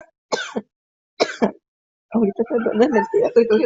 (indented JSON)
{
  "expert_labels": [
    {
      "quality": "ok",
      "cough_type": "dry",
      "dyspnea": false,
      "wheezing": false,
      "stridor": false,
      "choking": false,
      "congestion": false,
      "nothing": true,
      "diagnosis": "upper respiratory tract infection",
      "severity": "pseudocough/healthy cough"
    }
  ],
  "age": 33,
  "gender": "female",
  "respiratory_condition": false,
  "fever_muscle_pain": true,
  "status": "symptomatic"
}